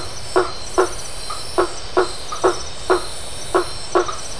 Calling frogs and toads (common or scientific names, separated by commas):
blacksmith tree frog